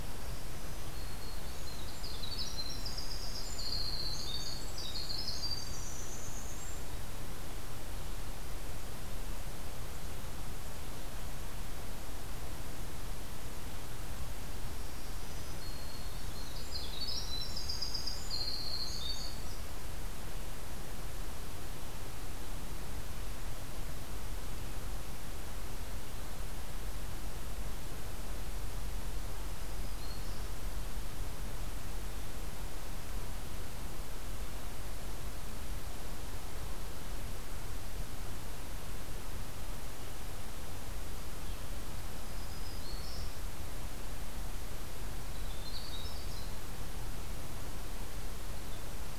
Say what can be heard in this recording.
Black-throated Green Warbler, Winter Wren